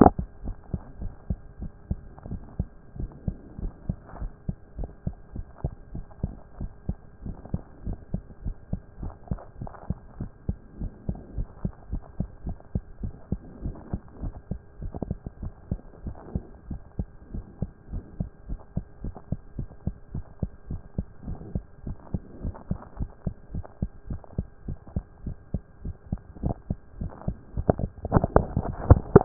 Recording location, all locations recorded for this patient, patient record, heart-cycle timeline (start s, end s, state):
mitral valve (MV)
pulmonary valve (PV)+tricuspid valve (TV)+mitral valve (MV)
#Age: Child
#Sex: Male
#Height: 123.0 cm
#Weight: 22.7 kg
#Pregnancy status: False
#Murmur: Absent
#Murmur locations: nan
#Most audible location: nan
#Systolic murmur timing: nan
#Systolic murmur shape: nan
#Systolic murmur grading: nan
#Systolic murmur pitch: nan
#Systolic murmur quality: nan
#Diastolic murmur timing: nan
#Diastolic murmur shape: nan
#Diastolic murmur grading: nan
#Diastolic murmur pitch: nan
#Diastolic murmur quality: nan
#Outcome: Normal
#Campaign: 2014 screening campaign
0.00	0.37	unannotated
0.37	0.44	diastole
0.44	0.56	S1
0.56	0.72	systole
0.72	0.80	S2
0.80	1.00	diastole
1.00	1.12	S1
1.12	1.28	systole
1.28	1.38	S2
1.38	1.60	diastole
1.60	1.72	S1
1.72	1.88	systole
1.88	1.98	S2
1.98	2.28	diastole
2.28	2.40	S1
2.40	2.58	systole
2.58	2.68	S2
2.68	2.98	diastole
2.98	3.10	S1
3.10	3.26	systole
3.26	3.36	S2
3.36	3.62	diastole
3.62	3.72	S1
3.72	3.88	systole
3.88	3.96	S2
3.96	4.20	diastole
4.20	4.32	S1
4.32	4.46	systole
4.46	4.56	S2
4.56	4.78	diastole
4.78	4.90	S1
4.90	5.06	systole
5.06	5.16	S2
5.16	5.34	diastole
5.34	5.46	S1
5.46	5.62	systole
5.62	5.72	S2
5.72	5.94	diastole
5.94	6.04	S1
6.04	6.22	systole
6.22	6.32	S2
6.32	6.60	diastole
6.60	6.70	S1
6.70	6.88	systole
6.88	6.96	S2
6.96	7.24	diastole
7.24	7.36	S1
7.36	7.52	systole
7.52	7.62	S2
7.62	7.86	diastole
7.86	7.98	S1
7.98	8.12	systole
8.12	8.22	S2
8.22	8.44	diastole
8.44	8.56	S1
8.56	8.70	systole
8.70	8.80	S2
8.80	9.00	diastole
9.00	9.12	S1
9.12	9.30	systole
9.30	9.40	S2
9.40	9.60	diastole
9.60	9.72	S1
9.72	9.88	systole
9.88	9.98	S2
9.98	10.18	diastole
10.18	10.30	S1
10.30	10.48	systole
10.48	10.58	S2
10.58	10.80	diastole
10.80	10.92	S1
10.92	11.08	systole
11.08	11.18	S2
11.18	11.36	diastole
11.36	11.48	S1
11.48	11.62	systole
11.62	11.72	S2
11.72	11.90	diastole
11.90	12.02	S1
12.02	12.18	systole
12.18	12.28	S2
12.28	12.46	diastole
12.46	12.56	S1
12.56	12.74	systole
12.74	12.82	S2
12.82	13.02	diastole
13.02	13.14	S1
13.14	13.30	systole
13.30	13.40	S2
13.40	13.62	diastole
13.62	13.76	S1
13.76	13.92	systole
13.92	14.00	S2
14.00	14.22	diastole
14.22	14.34	S1
14.34	14.50	systole
14.50	14.60	S2
14.60	14.82	diastole
14.82	14.92	S1
14.92	15.08	systole
15.08	15.18	S2
15.18	15.42	diastole
15.42	15.52	S1
15.52	15.70	systole
15.70	15.80	S2
15.80	16.04	diastole
16.04	16.16	S1
16.16	16.34	systole
16.34	16.44	S2
16.44	16.68	diastole
16.68	16.80	S1
16.80	16.98	systole
16.98	17.08	S2
17.08	17.34	diastole
17.34	17.44	S1
17.44	17.60	systole
17.60	17.70	S2
17.70	17.92	diastole
17.92	18.04	S1
18.04	18.18	systole
18.18	18.30	S2
18.30	18.48	diastole
18.48	18.60	S1
18.60	18.76	systole
18.76	18.84	S2
18.84	19.04	diastole
19.04	19.14	S1
19.14	19.30	systole
19.30	19.40	S2
19.40	19.58	diastole
19.58	19.68	S1
19.68	19.86	systole
19.86	19.96	S2
19.96	20.14	diastole
20.14	20.24	S1
20.24	20.42	systole
20.42	20.50	S2
20.50	20.70	diastole
20.70	20.82	S1
20.82	20.96	systole
20.96	21.06	S2
21.06	21.26	diastole
21.26	21.38	S1
21.38	21.54	systole
21.54	21.64	S2
21.64	21.86	diastole
21.86	21.96	S1
21.96	22.12	systole
22.12	22.22	S2
22.22	22.42	diastole
22.42	22.54	S1
22.54	22.70	systole
22.70	22.78	S2
22.78	22.98	diastole
22.98	23.10	S1
23.10	23.24	systole
23.24	23.34	S2
23.34	23.54	diastole
23.54	23.64	S1
23.64	23.80	systole
23.80	23.90	S2
23.90	24.10	diastole
24.10	24.20	S1
24.20	24.36	systole
24.36	24.46	S2
24.46	24.66	diastole
24.66	24.78	S1
24.78	24.94	systole
24.94	25.04	S2
25.04	25.24	diastole
25.24	25.36	S1
25.36	25.52	systole
25.52	25.62	S2
25.62	25.84	diastole
25.84	25.96	S1
25.96	26.10	systole
26.10	26.20	S2
26.20	26.42	diastole
26.42	29.25	unannotated